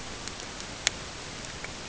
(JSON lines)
{"label": "ambient", "recorder": "HydroMoth"}